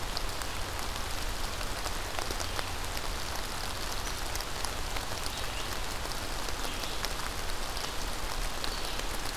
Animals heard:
forest ambience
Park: Marsh-Billings-Rockefeller National Historical Park